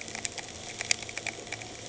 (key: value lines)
label: anthrophony, boat engine
recorder: HydroMoth